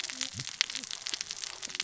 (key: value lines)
label: biophony, cascading saw
recorder: SoundTrap 600 or HydroMoth